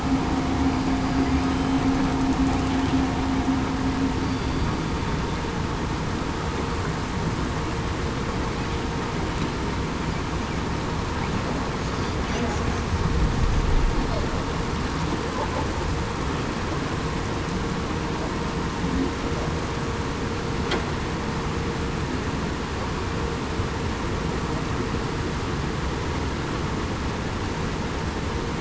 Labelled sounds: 1.0	1.3	killer whale, southern resident, 4.7 to 4.8 kHz

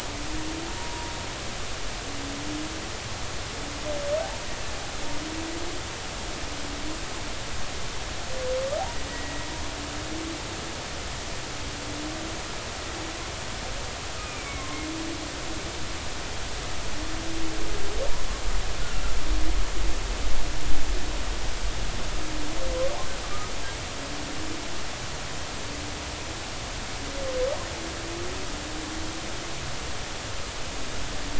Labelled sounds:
9.1	9.4	humpback whale, 1.9 to 2.0 kHz
14.2	14.7	humpback whale, 2.0 to 2.5 kHz

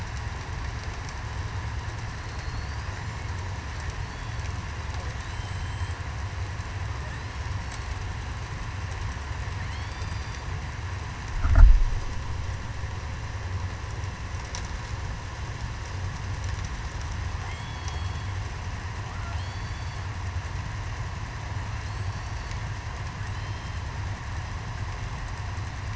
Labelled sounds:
2.2	2.7	killer whale, southern resident, 4.2 to 4.5 kHz
5.3	6.0	killer whale, southern resident, 2.9 to 7.8 kHz
9.7	10.3	killer whale, southern resident, 2.9 to 8.0 kHz
17.5	18.1	killer whale, southern resident, 3.1 to 3.4 kHz
19.4	19.7	killer whale, southern resident, 4.2 to 4.6 kHz
21.8	22.5	killer whale, southern resident, 4.1 to 7.9 kHz
23.3	23.8	killer whale, southern resident, 3.0 to 5.3 kHz

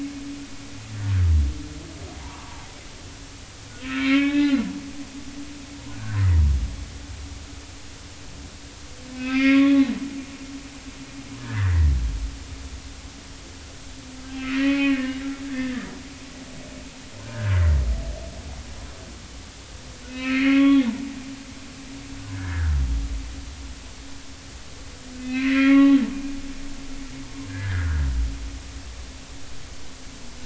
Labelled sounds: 0.2	0.6	humpback whale, 1.1 to 1.2 kHz
3.2	4.6	humpback whale, 0.80 to 3.8 kHz
9.1	9.8	humpback whale, 1.1 to 3.5 kHz
11.4	11.9	humpback whale, 1.4 to 2.0 kHz
14.5	15.2	humpback whale, 1.7 to 2.6 kHz
15.5	15.9	humpback whale, 1.7 to 1.9 kHz
20.1	20.9	humpback whale, 1.1 to 4.4 kHz
22.3	22.7	humpback whale, 1.4 to 1.8 kHz
25.2	27.0	humpback whale, 0.80 to 2.8 kHz
27.5	28.0	humpback whale, 1.3 to 1.9 kHz

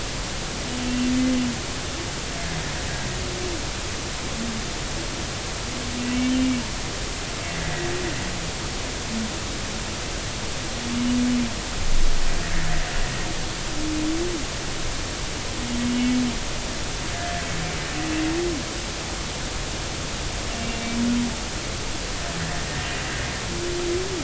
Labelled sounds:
0.8	1.1	humpback whale, 2.7 to 2.8 kHz
17.1	17.4	humpback whale, 1.6 to 2.0 kHz
20.5	20.8	humpback whale, 2.7 to 2.8 kHz
22.4	22.7	humpback whale, 1.7 to 2.0 kHz

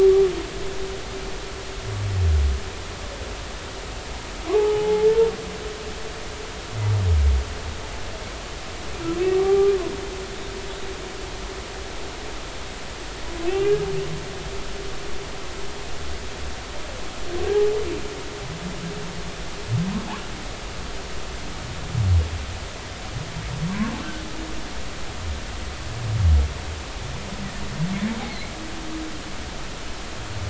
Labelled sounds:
4.5	5.3	humpback whale, 0.80 to 0.96 kHz
9.3	9.7	humpback whale, 0.80 to 1.2 kHz
13.5	13.8	humpback whale, 2.6 to 2.9 kHz
23.7	24.0	humpback whale, 0.93 to 1.2 kHz
28.3	28.5	humpback whale, 2.0 to 2.3 kHz

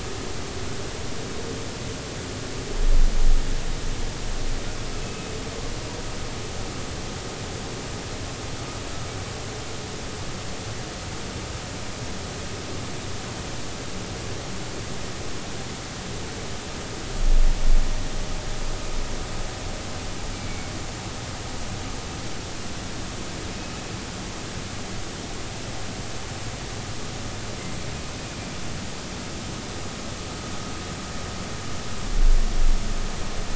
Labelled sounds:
5.0	5.3	humpback whale, 2.5 to 2.7 kHz
20.3	20.7	humpback whale, 2.2 to 2.4 kHz

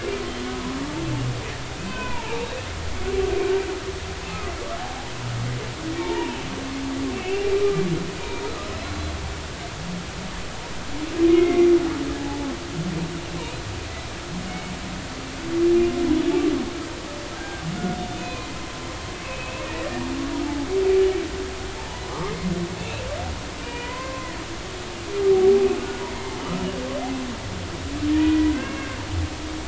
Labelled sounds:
1.8	2.5	humpback whale, 0.83 to 3.1 kHz
4.2	4.5	humpback whale, 2.4 to 2.7 kHz
5.9	6.4	humpback whale, 0.86 to 2.4 kHz
7.1	7.8	humpback whale, 1.2 to 2.8 kHz
8.2	9.1	humpback whale, 1.2 to 4.1 kHz
11.3	11.7	humpback whale, 2.0 to 2.2 kHz
17.4	18.5	humpback whale, 0.96 to 3.6 kHz
19.2	19.9	humpback whale, 1.8 to 2.7 kHz
21.8	22.5	humpback whale, 0.83 to 2.3 kHz
22.8	23.0	humpback whale, 2.5 to 2.8 kHz
23.6	24.3	humpback whale, 0.93 to 3.1 kHz
25.3	25.7	humpback whale, 0.80 to 0.83 kHz
28.1	28.9	humpback whale, 1.5 to 2.8 kHz

